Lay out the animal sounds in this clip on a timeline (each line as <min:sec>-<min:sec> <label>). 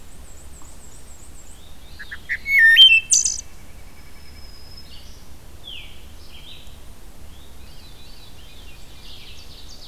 0:00.0-0:01.9 Black-and-white Warbler (Mniotilta varia)
0:01.5-0:03.1 Veery (Catharus fuscescens)
0:01.7-0:03.7 Wood Thrush (Hylocichla mustelina)
0:03.1-0:04.5 White-breasted Nuthatch (Sitta carolinensis)
0:03.6-0:05.3 Black-throated Green Warbler (Setophaga virens)
0:04.7-0:09.9 Red-eyed Vireo (Vireo olivaceus)
0:05.5-0:06.1 Veery (Catharus fuscescens)
0:07.2-0:09.1 Veery (Catharus fuscescens)
0:08.6-0:09.9 Ovenbird (Seiurus aurocapilla)